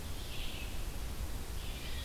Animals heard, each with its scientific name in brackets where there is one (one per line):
Red-eyed Vireo (Vireo olivaceus)